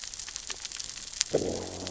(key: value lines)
label: biophony, growl
recorder: SoundTrap 600 or HydroMoth